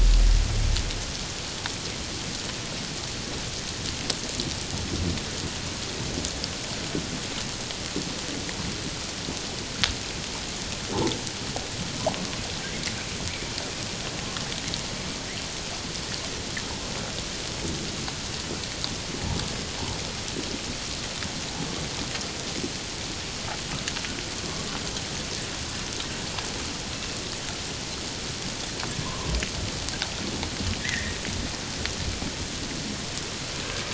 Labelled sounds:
29.0	29.4	humpback whale, 0.94 to 1.2 kHz
30.8	31.2	humpback whale, 1.7 to 2.1 kHz

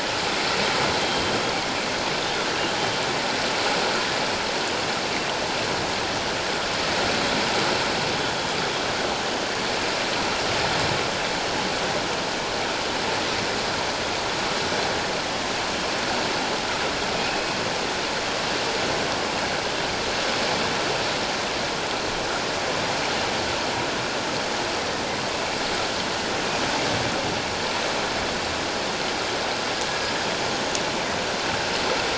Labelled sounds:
1.0	1.4	killer whale, northern resident, G clan, 3.1 to 3.3 kHz
17.2	17.6	killer whale, northern resident, G clan, 2.4 to 2.7 kHz

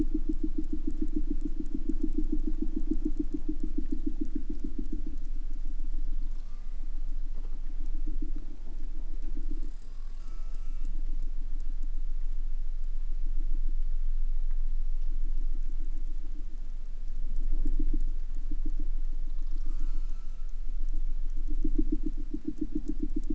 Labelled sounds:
6.3	7.0	killer whale, southern resident, J pod, call S04, 0.51 to 8.0 kHz
10.2	10.9	killer whale, southern resident, J pod, call S04, 0.51 to 8.0 kHz
19.2	20.6	killer whale, southern resident, J pod, call S04, 0.46 to 8.0 kHz

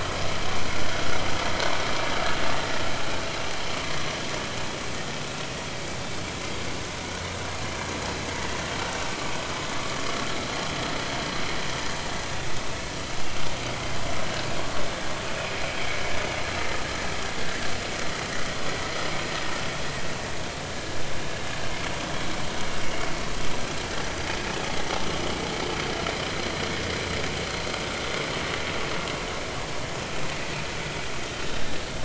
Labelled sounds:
5.1	5.4	vessel noise, 2.5 to 2.6 kHz
12.3	12.5	vessel noise, 3.4 to 3.7 kHz
24.4	24.6	vessel noise, 2.5 to 2.6 kHz

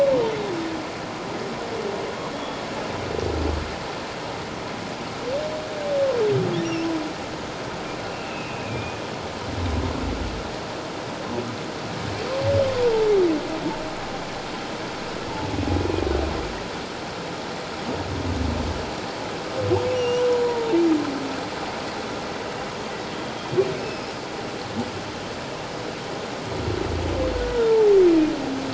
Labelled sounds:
2.3	2.6	humpback whale, 3.3 to 3.4 kHz
8.2	9.0	humpback whale, 2.3 to 2.8 kHz
19.9	20.7	humpback whale, 0.88 to 5.9 kHz
23.8	24.1	humpback whale, 2.5 to 5.3 kHz
27.3	27.8	humpback whale, 1.3 to 1.5 kHz

